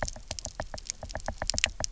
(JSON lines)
{"label": "biophony, knock", "recorder": "SoundTrap 300"}